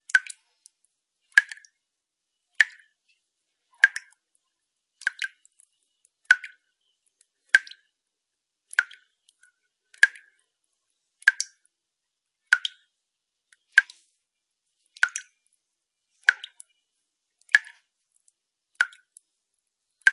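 0.0s A small water drop falls and splashes. 0.4s
1.2s A small water drop falls and splashes. 1.6s
2.5s A small water drop falls and splashes. 2.8s
3.8s A small water drop falls and splashes. 4.1s
4.9s Small water drops fall and splash with a slight echo. 5.4s
6.2s A small water drop falls and splashes. 6.5s
7.4s A small water drop falls and splashes. 7.8s
8.7s A small water drop falls and splashes. 9.1s
10.0s A small water drop falls and splashes. 10.3s
11.2s A small water drop falls and splashes. 11.5s
12.4s A small water drop falls and splashes. 12.8s
13.6s A small water drop falls and splashes. 14.0s
14.9s A small water drop falls and splashes. 15.3s
16.2s A small water drop falls and splashes. 16.7s
17.4s A small water drop falls and splashes. 17.7s
18.7s A small water drop falls and splashes. 19.0s
20.0s A small water drop falls and splashes. 20.1s

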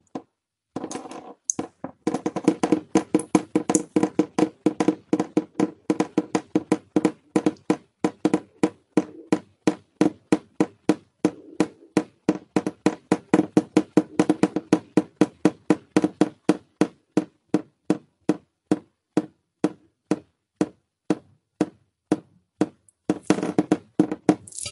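0.0s Liquid drips irregularly onto a resonant surface. 24.7s

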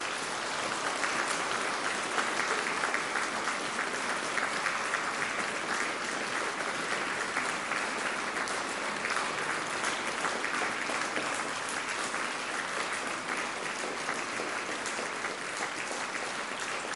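0.0s Tight, regular hand clapping. 17.0s

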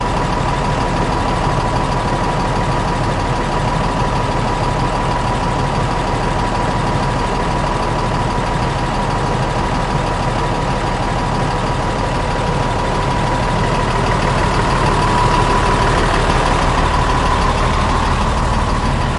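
0.0s An engine hums with a steady pattern. 19.2s

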